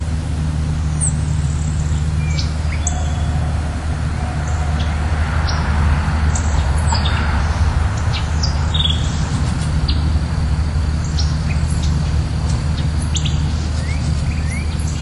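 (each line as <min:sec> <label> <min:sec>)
0:00.8 A bird chatters at a medium distance. 0:03.9
0:03.7 A car passes by at a medium distance. 0:09.3
0:04.1 Several birds chirp at medium and distant ranges. 0:15.0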